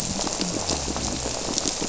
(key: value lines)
label: biophony
recorder: SoundTrap 300